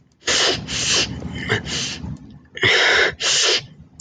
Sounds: Sniff